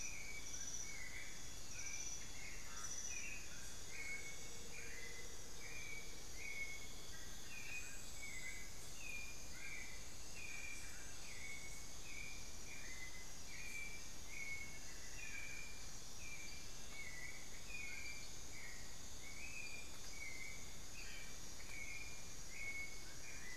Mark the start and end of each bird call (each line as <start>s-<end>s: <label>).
0.0s-11.7s: Dull-capped Attila (Attila bolivianus)
0.0s-23.6s: White-necked Thrush (Turdus albicollis)
1.0s-4.0s: Amazonian Barred-Woodcreeper (Dendrocolaptes certhia)
3.5s-6.9s: Amazonian Motmot (Momotus momota)
14.7s-16.0s: Amazonian Barred-Woodcreeper (Dendrocolaptes certhia)
17.6s-18.3s: Dull-capped Attila (Attila bolivianus)
21.0s-21.4s: unidentified bird
22.8s-23.6s: Dull-capped Attila (Attila bolivianus)